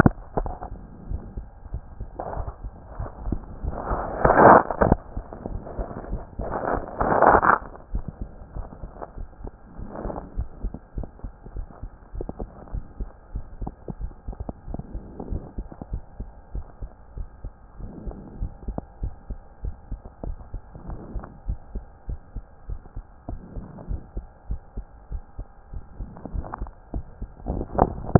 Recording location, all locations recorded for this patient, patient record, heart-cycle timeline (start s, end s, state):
mitral valve (MV)
aortic valve (AV)+pulmonary valve (PV)+tricuspid valve (TV)+mitral valve (MV)
#Age: Child
#Sex: Male
#Height: 129.0 cm
#Weight: 24.6 kg
#Pregnancy status: False
#Murmur: Absent
#Murmur locations: nan
#Most audible location: nan
#Systolic murmur timing: nan
#Systolic murmur shape: nan
#Systolic murmur grading: nan
#Systolic murmur pitch: nan
#Systolic murmur quality: nan
#Diastolic murmur timing: nan
#Diastolic murmur shape: nan
#Diastolic murmur grading: nan
#Diastolic murmur pitch: nan
#Diastolic murmur quality: nan
#Outcome: Abnormal
#Campaign: 2014 screening campaign
0.00	10.27	unannotated
10.27	10.36	diastole
10.36	10.48	S1
10.48	10.62	systole
10.62	10.72	S2
10.72	10.96	diastole
10.96	11.08	S1
11.08	11.24	systole
11.24	11.32	S2
11.32	11.54	diastole
11.54	11.66	S1
11.66	11.82	systole
11.82	11.90	S2
11.90	12.16	diastole
12.16	12.28	S1
12.28	12.40	systole
12.40	12.48	S2
12.48	12.72	diastole
12.72	12.84	S1
12.84	12.98	systole
12.98	13.08	S2
13.08	13.34	diastole
13.34	13.44	S1
13.44	13.60	systole
13.60	13.70	S2
13.70	14.00	diastole
14.00	14.12	S1
14.12	14.28	systole
14.28	14.36	S2
14.36	14.68	diastole
14.68	14.80	S1
14.80	14.94	systole
14.94	15.02	S2
15.02	15.30	diastole
15.30	15.42	S1
15.42	15.56	systole
15.56	15.66	S2
15.66	15.92	diastole
15.92	16.02	S1
16.02	16.18	systole
16.18	16.28	S2
16.28	16.54	diastole
16.54	16.64	S1
16.64	16.82	systole
16.82	16.90	S2
16.90	17.16	diastole
17.16	17.28	S1
17.28	17.44	systole
17.44	17.52	S2
17.52	17.80	diastole
17.80	17.90	S1
17.90	18.06	systole
18.06	18.14	S2
18.14	18.40	diastole
18.40	18.50	S1
18.50	18.66	systole
18.66	18.78	S2
18.78	19.02	diastole
19.02	19.14	S1
19.14	19.28	systole
19.28	19.38	S2
19.38	19.64	diastole
19.64	19.74	S1
19.74	19.90	systole
19.90	20.00	S2
20.00	20.24	diastole
20.24	20.36	S1
20.36	20.52	systole
20.52	20.62	S2
20.62	20.88	diastole
20.88	21.00	S1
21.00	21.14	systole
21.14	21.24	S2
21.24	21.46	diastole
21.46	21.58	S1
21.58	21.74	systole
21.74	21.84	S2
21.84	22.08	diastole
22.08	22.20	S1
22.20	22.34	systole
22.34	22.44	S2
22.44	22.68	diastole
22.68	22.80	S1
22.80	22.96	systole
22.96	23.04	S2
23.04	23.28	diastole
23.28	23.40	S1
23.40	23.56	systole
23.56	23.64	S2
23.64	23.88	diastole
23.88	24.00	S1
24.00	24.16	systole
24.16	24.26	S2
24.26	24.48	diastole
24.48	24.60	S1
24.60	24.76	systole
24.76	24.86	S2
24.86	25.12	diastole
25.12	25.22	S1
25.22	25.38	systole
25.38	25.46	S2
25.46	25.72	diastole
25.72	25.84	S1
25.84	26.00	systole
26.00	26.10	S2
26.10	26.34	diastole
26.34	28.19	unannotated